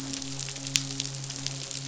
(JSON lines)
{"label": "biophony, midshipman", "recorder": "SoundTrap 500"}